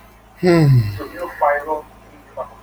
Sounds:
Sigh